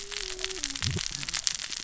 {"label": "biophony, cascading saw", "recorder": "SoundTrap 600 or HydroMoth"}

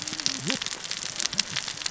{"label": "biophony, cascading saw", "recorder": "SoundTrap 600 or HydroMoth"}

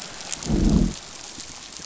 {"label": "biophony, growl", "recorder": "SoundTrap 500"}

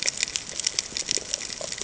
{"label": "ambient", "recorder": "HydroMoth"}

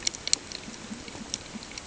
{"label": "ambient", "recorder": "HydroMoth"}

